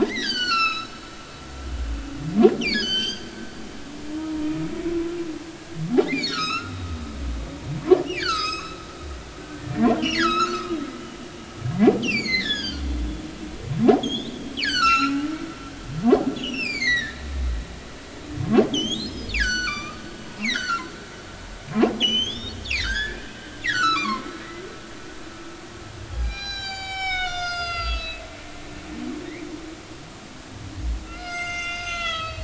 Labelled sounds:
0.0	1.0	humpback whale, 1.2 to 7.8 kHz
2.6	3.3	humpback whale, 1.4 to 7.8 kHz
4.2	4.5	humpback whale, 0.90 to 0.99 kHz
4.9	5.1	humpback whale, 0.96 to 1.1 kHz
6.1	6.7	humpback whale, 1.1 to 6.8 kHz
8.2	8.8	humpback whale, 1.0 to 7.8 kHz
9.6	11.3	humpback whale, 1.0 to 6.9 kHz
12.0	12.8	humpback whale, 1.4 to 7.1 kHz
14.0	17.3	humpback whale, 1.2 to 7.0 kHz
18.7	20.9	humpback whale, 0.80 to 7.6 kHz
22.0	23.2	humpback whale, 1.3 to 6.6 kHz
23.6	24.3	humpback whale, 0.96 to 6.1 kHz
26.1	28.2	humpback whale, 0.80 to 7.7 kHz
31.0	32.4	humpback whale, 1.2 to 7.8 kHz

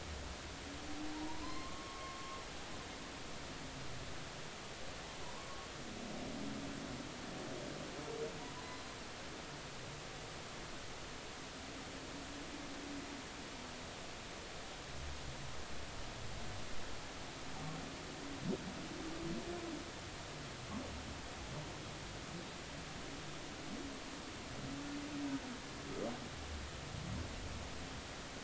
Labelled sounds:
1.1	2.7	humpback whale, 0.86 to 4.3 kHz
5.2	5.7	humpback whale, 0.90 to 1.2 kHz
8.5	8.8	humpback whale, 0.93 to 1.1 kHz

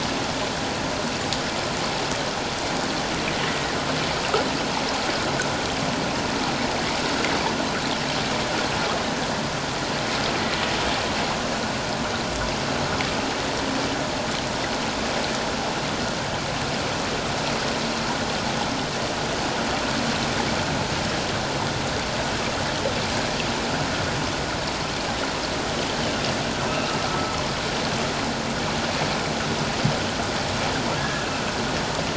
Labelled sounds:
3.5	3.7	water noise, 1.8 to 2.0 kHz
27.1	27.4	humpback whale, 1.2 to 1.3 kHz
31.0	31.3	humpback whale, 1.6 to 1.8 kHz

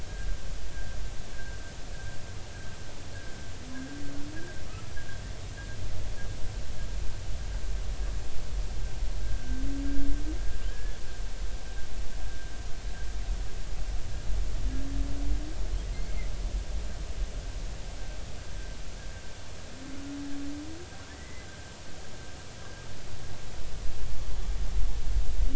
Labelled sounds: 1.3	1.6	humpback whale, 1.5 to 1.7 kHz
10.6	11.0	humpback whale, 1.4 to 1.8 kHz
16.1	16.3	humpback whale, 1.9 to 2.2 kHz
21.1	21.5	humpback whale, 1.9 to 2.1 kHz

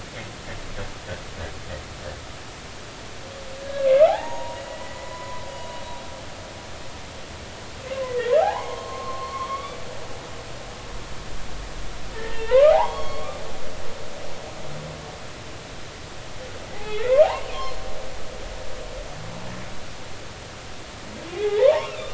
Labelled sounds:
3.8	5.4	humpback whale, 0.80 to 6.7 kHz
7.9	9.8	humpback whale, 0.80 to 6.6 kHz
12.1	13.4	humpback whale, 0.80 to 4.4 kHz
16.7	17.1	humpback whale, 0.80 to 2.7 kHz
21.3	21.9	humpback whale, 0.80 to 2.1 kHz

